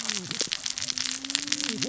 {"label": "biophony, cascading saw", "recorder": "SoundTrap 600 or HydroMoth"}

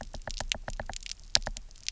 {"label": "biophony, knock", "recorder": "SoundTrap 300"}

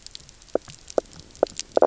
{"label": "biophony, knock croak", "recorder": "SoundTrap 300"}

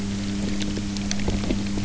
{"label": "anthrophony, boat engine", "recorder": "SoundTrap 300"}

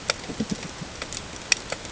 {"label": "ambient", "recorder": "HydroMoth"}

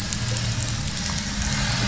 {"label": "anthrophony, boat engine", "recorder": "SoundTrap 500"}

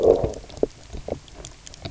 {"label": "biophony, low growl", "recorder": "SoundTrap 300"}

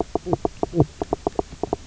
{"label": "biophony, knock croak", "recorder": "SoundTrap 300"}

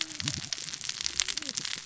{"label": "biophony, cascading saw", "recorder": "SoundTrap 600 or HydroMoth"}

